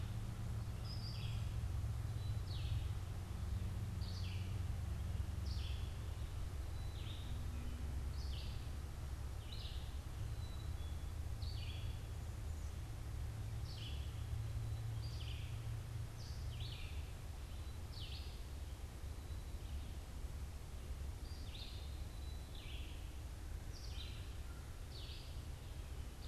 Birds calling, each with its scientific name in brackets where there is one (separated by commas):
Black-capped Chickadee (Poecile atricapillus), Red-eyed Vireo (Vireo olivaceus)